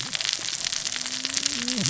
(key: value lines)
label: biophony, cascading saw
recorder: SoundTrap 600 or HydroMoth